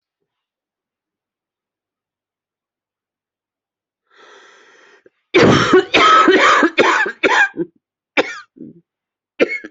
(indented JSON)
{
  "expert_labels": [
    {
      "quality": "good",
      "cough_type": "dry",
      "dyspnea": false,
      "wheezing": false,
      "stridor": false,
      "choking": false,
      "congestion": false,
      "nothing": true,
      "diagnosis": "upper respiratory tract infection",
      "severity": "mild"
    }
  ],
  "gender": "female",
  "respiratory_condition": false,
  "fever_muscle_pain": false,
  "status": "symptomatic"
}